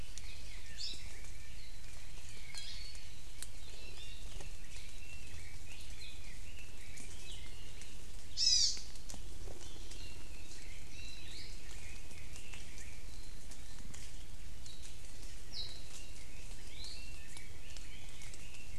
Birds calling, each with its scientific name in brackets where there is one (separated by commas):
Red-billed Leiothrix (Leiothrix lutea), Hawaii Creeper (Loxops mana), Iiwi (Drepanis coccinea), Apapane (Himatione sanguinea)